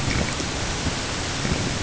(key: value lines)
label: ambient
recorder: HydroMoth